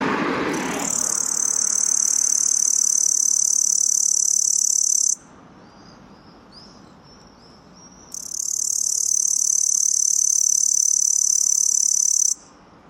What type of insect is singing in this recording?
orthopteran